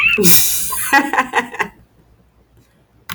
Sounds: Laughter